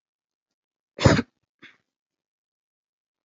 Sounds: Cough